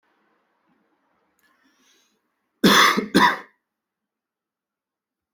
{"expert_labels": [{"quality": "good", "cough_type": "dry", "dyspnea": false, "wheezing": false, "stridor": false, "choking": false, "congestion": false, "nothing": true, "diagnosis": "healthy cough", "severity": "pseudocough/healthy cough"}], "age": 29, "gender": "male", "respiratory_condition": false, "fever_muscle_pain": false, "status": "symptomatic"}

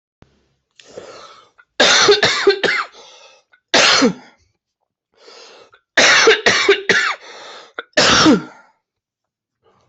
{"expert_labels": [{"quality": "good", "cough_type": "dry", "dyspnea": false, "wheezing": false, "stridor": false, "choking": false, "congestion": false, "nothing": true, "diagnosis": "upper respiratory tract infection", "severity": "mild"}], "age": 31, "gender": "male", "respiratory_condition": false, "fever_muscle_pain": true, "status": "symptomatic"}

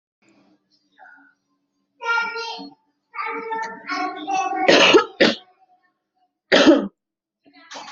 {"expert_labels": [{"quality": "good", "cough_type": "wet", "dyspnea": false, "wheezing": false, "stridor": false, "choking": false, "congestion": false, "nothing": true, "diagnosis": "healthy cough", "severity": "pseudocough/healthy cough"}], "age": 39, "gender": "female", "respiratory_condition": true, "fever_muscle_pain": false, "status": "symptomatic"}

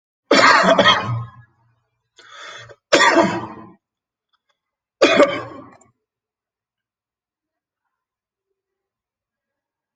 {"expert_labels": [{"quality": "poor", "cough_type": "dry", "dyspnea": false, "wheezing": false, "stridor": false, "choking": false, "congestion": false, "nothing": true, "diagnosis": "lower respiratory tract infection", "severity": "mild"}]}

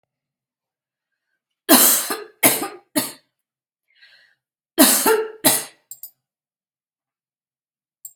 {"expert_labels": [{"quality": "good", "cough_type": "dry", "dyspnea": false, "wheezing": false, "stridor": false, "choking": false, "congestion": false, "nothing": true, "diagnosis": "upper respiratory tract infection", "severity": "mild"}], "age": 46, "gender": "female", "respiratory_condition": false, "fever_muscle_pain": false, "status": "healthy"}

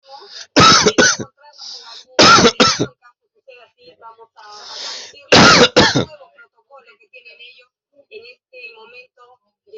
{"expert_labels": [{"quality": "ok", "cough_type": "dry", "dyspnea": false, "wheezing": false, "stridor": false, "choking": false, "congestion": false, "nothing": true, "diagnosis": "COVID-19", "severity": "mild"}]}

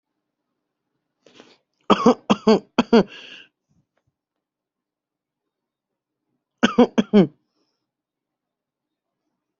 {"expert_labels": [{"quality": "ok", "cough_type": "dry", "dyspnea": false, "wheezing": false, "stridor": false, "choking": false, "congestion": false, "nothing": true, "diagnosis": "upper respiratory tract infection", "severity": "mild"}]}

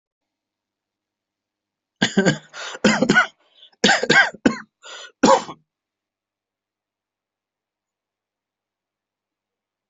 {"expert_labels": [{"quality": "good", "cough_type": "dry", "dyspnea": true, "wheezing": false, "stridor": false, "choking": false, "congestion": false, "nothing": false, "diagnosis": "COVID-19", "severity": "severe"}], "age": 35, "gender": "male", "respiratory_condition": false, "fever_muscle_pain": false, "status": "COVID-19"}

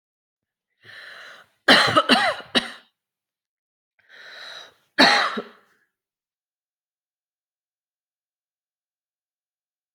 {"expert_labels": [{"quality": "good", "cough_type": "dry", "dyspnea": false, "wheezing": false, "stridor": false, "choking": false, "congestion": false, "nothing": true, "diagnosis": "healthy cough", "severity": "pseudocough/healthy cough"}], "age": 30, "gender": "female", "respiratory_condition": false, "fever_muscle_pain": false, "status": "COVID-19"}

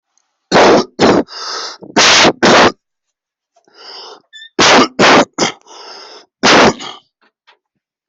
{"expert_labels": [{"quality": "poor", "cough_type": "unknown", "dyspnea": false, "wheezing": false, "stridor": false, "choking": false, "congestion": false, "nothing": true, "diagnosis": "upper respiratory tract infection", "severity": "mild"}], "age": 34, "gender": "male", "respiratory_condition": true, "fever_muscle_pain": false, "status": "COVID-19"}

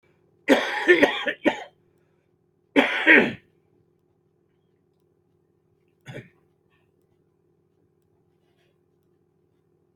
{"expert_labels": [{"quality": "ok", "cough_type": "dry", "dyspnea": false, "wheezing": false, "stridor": false, "choking": false, "congestion": false, "nothing": true, "diagnosis": "lower respiratory tract infection", "severity": "mild"}], "age": 63, "gender": "male", "respiratory_condition": false, "fever_muscle_pain": true, "status": "symptomatic"}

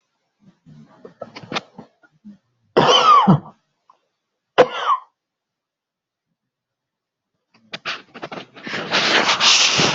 {"expert_labels": [{"quality": "good", "cough_type": "unknown", "dyspnea": false, "wheezing": false, "stridor": false, "choking": false, "congestion": false, "nothing": true, "diagnosis": "lower respiratory tract infection", "severity": "unknown"}], "age": 62, "gender": "female", "respiratory_condition": false, "fever_muscle_pain": false, "status": "COVID-19"}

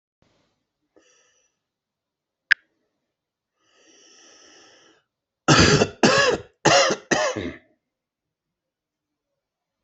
{"expert_labels": [{"quality": "good", "cough_type": "unknown", "dyspnea": false, "wheezing": false, "stridor": false, "choking": false, "congestion": false, "nothing": true, "diagnosis": "healthy cough", "severity": "pseudocough/healthy cough"}], "age": 56, "gender": "male", "respiratory_condition": false, "fever_muscle_pain": false, "status": "healthy"}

